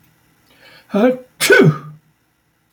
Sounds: Sneeze